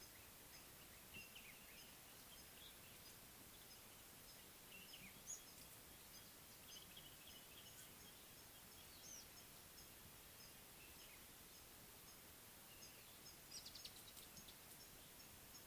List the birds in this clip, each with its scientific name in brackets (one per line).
Common Bulbul (Pycnonotus barbatus)
Speckled Mousebird (Colius striatus)